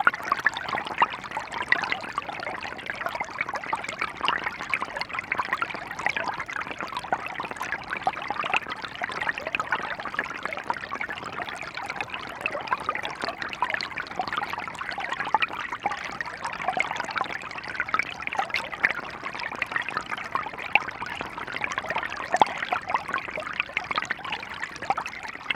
What fluid is making the noise?
water